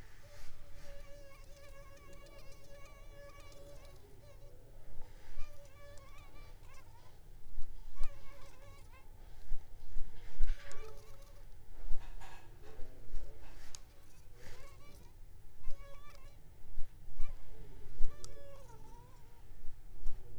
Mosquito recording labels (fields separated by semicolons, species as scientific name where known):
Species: Anopheles arabiensis; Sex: female; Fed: unfed; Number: one; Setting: cup